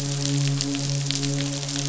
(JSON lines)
{"label": "biophony, midshipman", "recorder": "SoundTrap 500"}